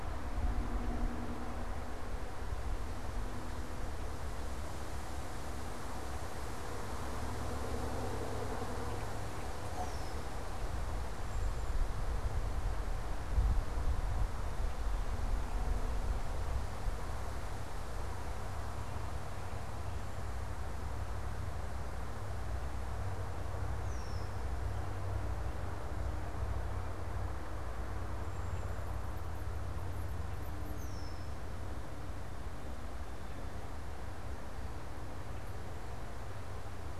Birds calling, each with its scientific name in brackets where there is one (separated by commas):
Red-winged Blackbird (Agelaius phoeniceus), Cedar Waxwing (Bombycilla cedrorum)